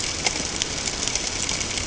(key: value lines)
label: ambient
recorder: HydroMoth